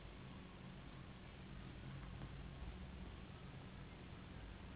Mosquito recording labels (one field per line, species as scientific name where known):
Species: Anopheles gambiae s.s.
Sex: female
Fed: unfed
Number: one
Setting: insect culture